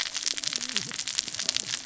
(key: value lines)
label: biophony, cascading saw
recorder: SoundTrap 600 or HydroMoth